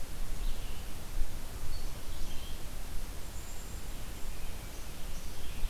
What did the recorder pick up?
Red-eyed Vireo, Black-capped Chickadee